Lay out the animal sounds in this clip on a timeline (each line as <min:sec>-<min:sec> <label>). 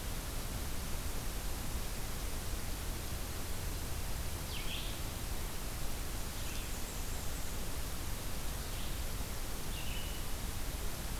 0:00.0-0:11.2 Red-eyed Vireo (Vireo olivaceus)
0:06.3-0:07.7 Blackburnian Warbler (Setophaga fusca)